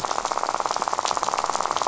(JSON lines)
{"label": "biophony, rattle", "recorder": "SoundTrap 500"}